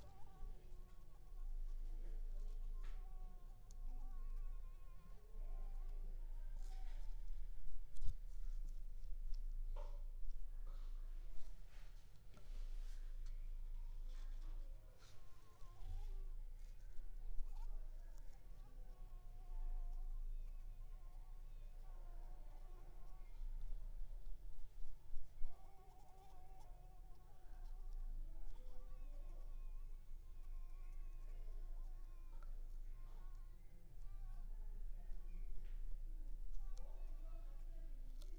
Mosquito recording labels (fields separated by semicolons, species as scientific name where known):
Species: Anopheles squamosus; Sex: female; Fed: blood-fed; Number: one; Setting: cup